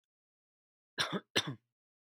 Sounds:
Cough